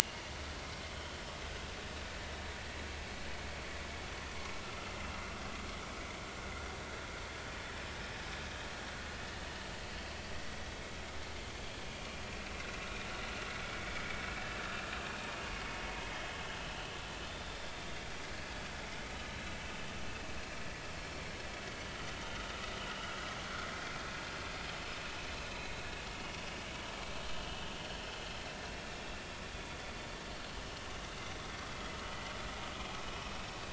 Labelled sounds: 9.4	9.7	vessel noise, 2.8 to 3.0 kHz
15.0	15.3	vessel noise, 2.4 to 2.6 kHz
15.5	16.3	vessel noise, 2.1 to 3.3 kHz
22.2	22.5	vessel noise, 1.2 to 1.5 kHz
33.1	33.4	vessel noise, 5.4 to 5.6 kHz

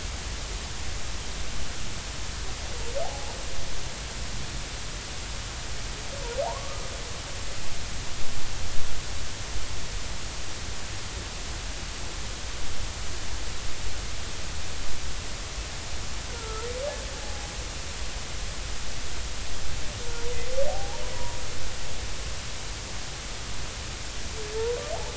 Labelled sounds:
3.0	3.3	humpback whale, 0.80 to 0.96 kHz
6.4	6.8	humpback whale, 0.80 to 1.3 kHz
16.3	17.5	humpback whale, 0.80 to 1.5 kHz
20.7	21.4	humpback whale, 0.80 to 1.0 kHz

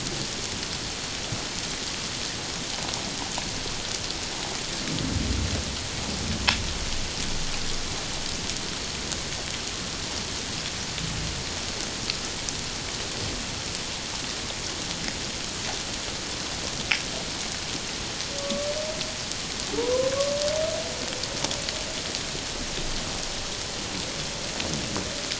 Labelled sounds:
18.4	18.7	humpback whale, 1.1 to 1.2 kHz
19.8	20.1	humpback whale, 0.84 to 1.1 kHz

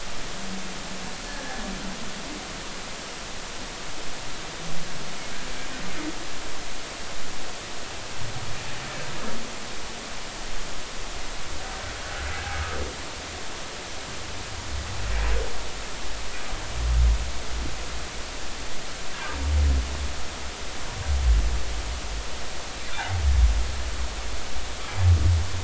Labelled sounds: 1.3	1.6	humpback whale, 1.6 to 1.8 kHz
12.5	12.8	humpback whale, 1.2 to 1.4 kHz
23.0	23.2	humpback whale, 0.80 to 0.96 kHz

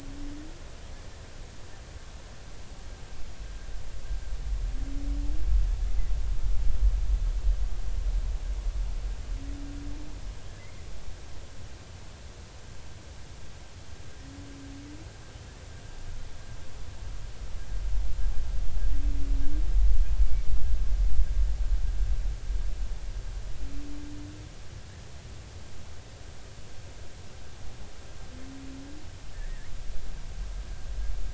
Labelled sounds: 10.6	10.8	humpback whale, 2.0 to 2.2 kHz
29.3	29.7	humpback whale, 1.7 to 2.0 kHz

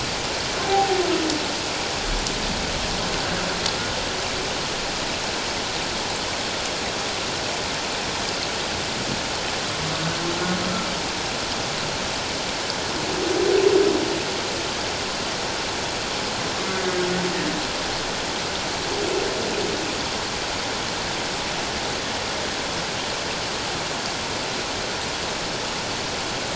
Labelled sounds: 0.6	1.0	humpback whale, 0.78 to 0.91 kHz

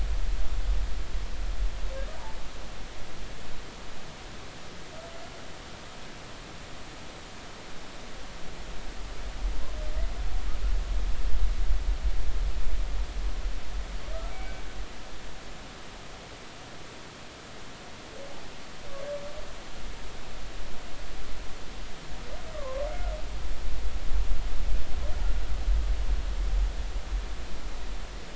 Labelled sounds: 14.3	14.6	humpback whale, 2.2 to 2.3 kHz
22.5	23.1	humpback whale, 0.99 to 1.5 kHz

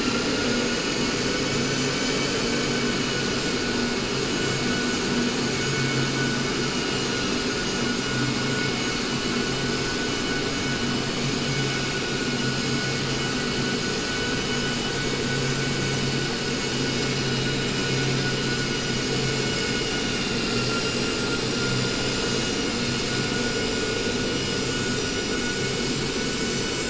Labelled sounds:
21.5	22.5	vessel noise, 1.4 to 3.9 kHz

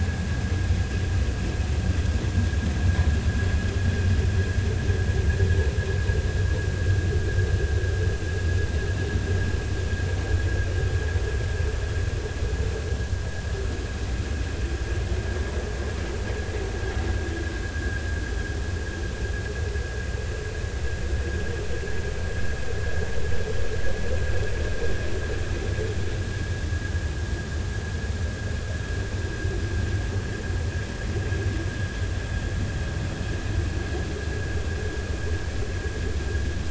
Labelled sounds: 17.7	18.0	vessel noise, 1.5 to 1.7 kHz

